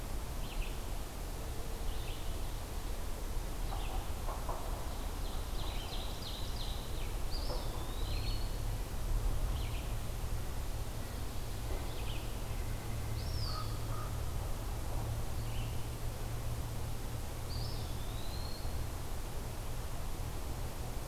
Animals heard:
Red-eyed Vireo (Vireo olivaceus), Ovenbird (Seiurus aurocapilla), Eastern Wood-Pewee (Contopus virens)

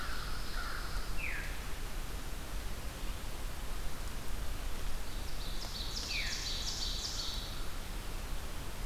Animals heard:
American Crow (Corvus brachyrhynchos), Ovenbird (Seiurus aurocapilla), Veery (Catharus fuscescens), Pine Warbler (Setophaga pinus)

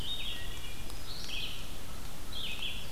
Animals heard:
Wood Thrush (Hylocichla mustelina), Red-eyed Vireo (Vireo olivaceus), American Crow (Corvus brachyrhynchos)

